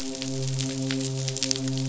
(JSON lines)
{"label": "biophony, midshipman", "recorder": "SoundTrap 500"}